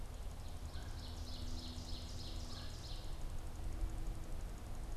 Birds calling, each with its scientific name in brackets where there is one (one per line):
Ovenbird (Seiurus aurocapilla)
Red-bellied Woodpecker (Melanerpes carolinus)